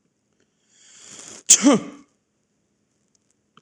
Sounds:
Sneeze